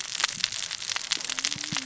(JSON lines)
{"label": "biophony, cascading saw", "recorder": "SoundTrap 600 or HydroMoth"}